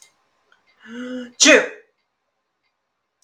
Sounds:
Sneeze